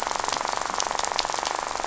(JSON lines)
{"label": "biophony, rattle", "recorder": "SoundTrap 500"}